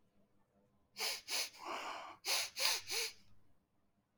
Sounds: Sniff